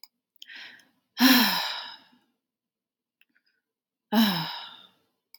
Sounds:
Sigh